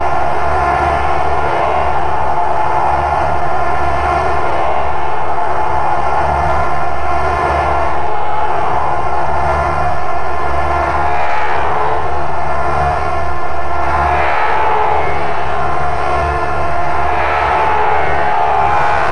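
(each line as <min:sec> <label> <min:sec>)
0:00.4 The sound of a train moving through a tunnel with periodic echoes against the wall. 0:10.3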